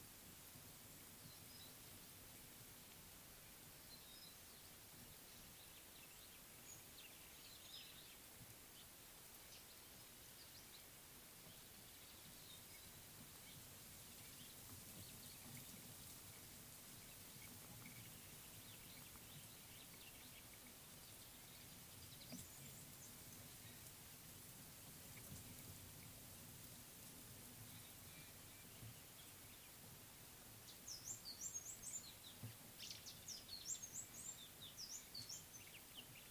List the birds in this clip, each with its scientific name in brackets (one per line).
White-browed Sparrow-Weaver (Plocepasser mahali)
Reichenow's Seedeater (Crithagra reichenowi)